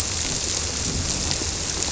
{"label": "biophony", "recorder": "SoundTrap 300"}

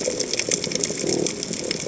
{"label": "biophony", "recorder": "HydroMoth"}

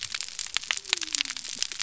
{"label": "biophony", "recorder": "SoundTrap 300"}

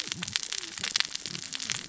{"label": "biophony, cascading saw", "recorder": "SoundTrap 600 or HydroMoth"}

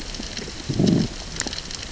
{"label": "biophony, growl", "recorder": "SoundTrap 600 or HydroMoth"}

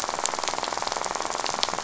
{"label": "biophony, rattle", "recorder": "SoundTrap 500"}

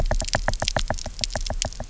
{"label": "biophony, knock", "recorder": "SoundTrap 300"}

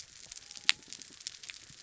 {"label": "biophony", "recorder": "SoundTrap 300"}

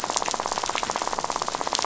{"label": "biophony, rattle", "recorder": "SoundTrap 500"}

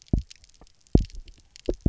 {"label": "biophony, double pulse", "recorder": "SoundTrap 300"}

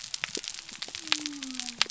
{"label": "biophony", "recorder": "SoundTrap 300"}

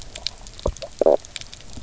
{"label": "biophony, knock croak", "recorder": "SoundTrap 300"}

